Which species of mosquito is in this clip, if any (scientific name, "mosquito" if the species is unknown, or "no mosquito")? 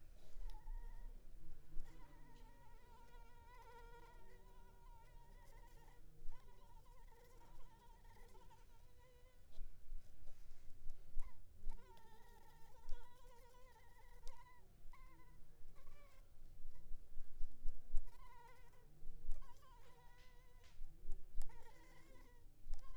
Anopheles arabiensis